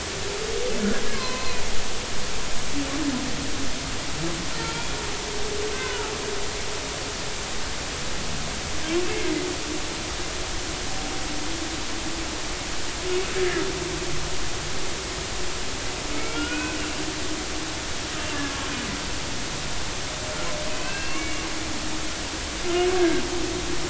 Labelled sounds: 1.1	1.6	humpback whale, 0.96 to 2.6 kHz
4.6	4.8	humpback whale, 0.86 to 0.99 kHz
5.7	6.1	humpback whale, 0.83 to 2.6 kHz
13.4	13.6	humpback whale, 1.6 to 1.9 kHz
16.1	16.8	humpback whale, 1.3 to 3.0 kHz
20.7	21.5	humpback whale, 1.5 to 2.8 kHz
23.0	23.2	humpback whale, 1.5 to 1.7 kHz

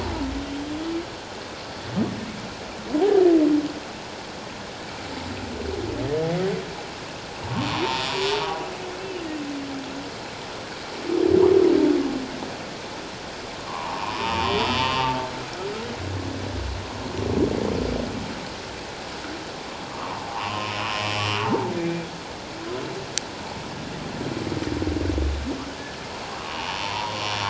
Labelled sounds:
7.7	8.1	humpback whale, 0.88 to 5.7 kHz
13.6	15.1	humpback whale, 0.78 to 3.7 kHz
19.9	22.1	humpback whale, 0.78 to 3.1 kHz
26.3	27.1	humpback whale, 0.81 to 5.8 kHz

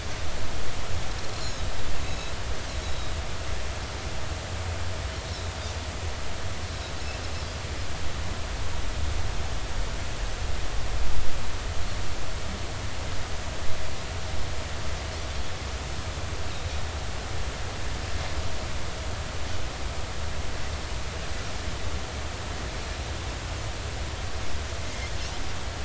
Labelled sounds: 1.3	1.7	Pacific white-sided dolphin, 3.8 to 5.6 kHz
2.8	3.3	Pacific white-sided dolphin, 3.7 to 4.1 kHz
24.8	25.1	Pacific white-sided dolphin, 2.0 to 2.2 kHz

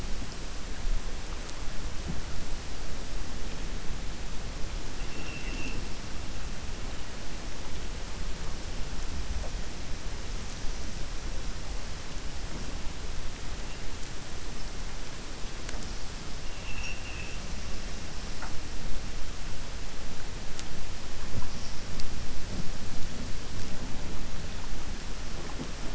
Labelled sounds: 16.5	17.4	killer whale, 1.8 to 3.0 kHz

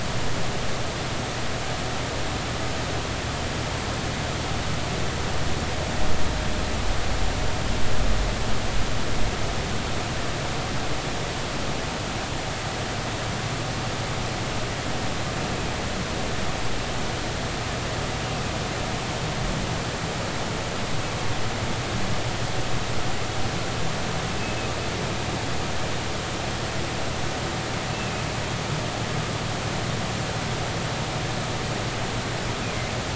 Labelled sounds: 27.9	28.2	humpback whale, 2.5 to 2.7 kHz

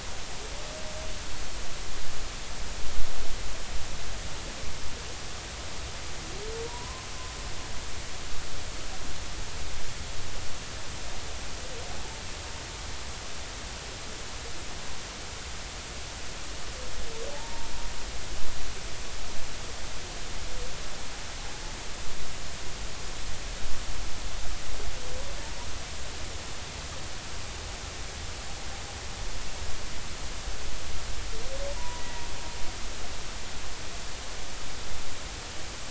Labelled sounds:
6.6	7.1	humpback whale, 0.90 to 1.1 kHz
17.3	17.7	humpback whale, 0.83 to 0.99 kHz
31.8	32.3	humpback whale, 0.93 to 2.0 kHz

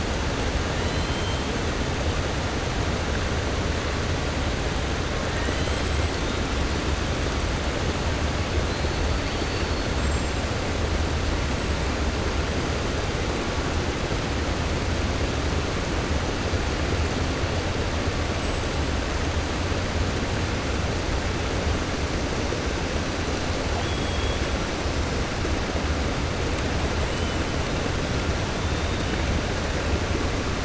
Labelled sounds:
0.8	1.4	killer whale, 3.0 to 4.2 kHz
5.3	5.9	killer whale, 0.96 to 4.3 kHz
23.7	24.4	killer whale, 2.9 to 4.1 kHz

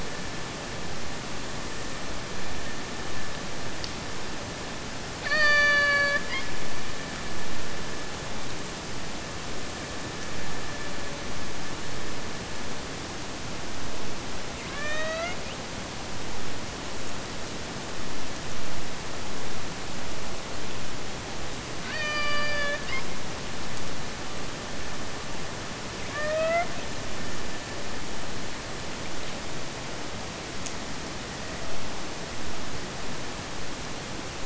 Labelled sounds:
5.2	6.5	killer whale, Bigg's (transient), AT1 transient, 0.46 to 7.4 kHz
14.6	15.5	killer whale, Bigg's (transient), AT1 transient, 0.51 to 8.0 kHz
21.8	23.2	killer whale, Bigg's (transient), AT1 transient, 0.42 to 7.4 kHz
26.0	26.8	killer whale, Bigg's (transient), AT1 transient, 0.46 to 5.2 kHz
31.1	31.8	killer whale, Bigg's (transient), AT1 transient, 0.37 to 2.2 kHz

